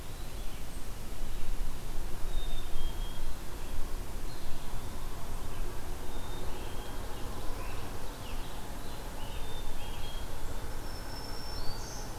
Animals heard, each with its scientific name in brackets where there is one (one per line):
Eastern Wood-Pewee (Contopus virens)
Black-capped Chickadee (Poecile atricapillus)
Scarlet Tanager (Piranga olivacea)
Black-throated Green Warbler (Setophaga virens)